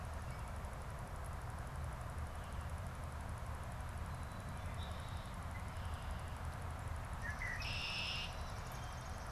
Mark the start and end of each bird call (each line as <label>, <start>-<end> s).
Red-winged Blackbird (Agelaius phoeniceus), 4.4-6.5 s
Red-winged Blackbird (Agelaius phoeniceus), 7.0-8.7 s